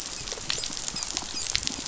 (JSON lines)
{"label": "biophony, dolphin", "recorder": "SoundTrap 500"}